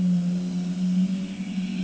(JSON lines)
{"label": "anthrophony, boat engine", "recorder": "HydroMoth"}